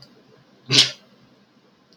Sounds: Sneeze